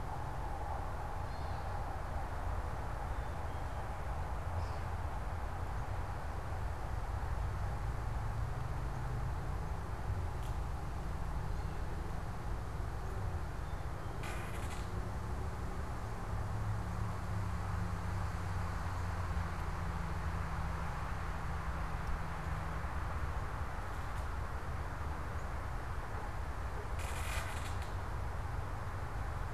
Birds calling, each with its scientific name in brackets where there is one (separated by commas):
Gray Catbird (Dumetella carolinensis), Black-capped Chickadee (Poecile atricapillus)